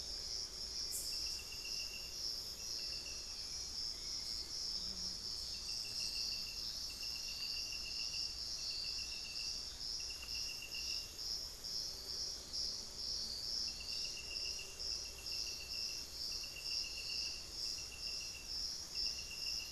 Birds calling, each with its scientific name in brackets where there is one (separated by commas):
Hauxwell's Thrush (Turdus hauxwelli)